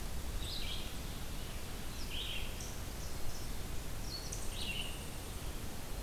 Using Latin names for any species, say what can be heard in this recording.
Tamias striatus, Vireo olivaceus